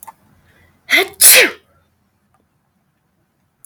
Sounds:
Sneeze